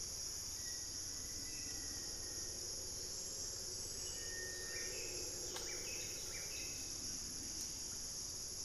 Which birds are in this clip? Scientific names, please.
Formicarius analis, Cantorchilus leucotis